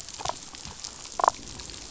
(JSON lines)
{"label": "biophony, damselfish", "recorder": "SoundTrap 500"}